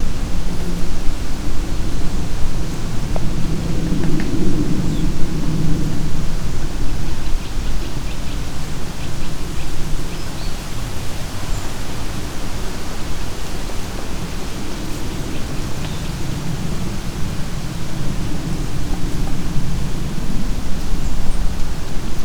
Are there birds around?
yes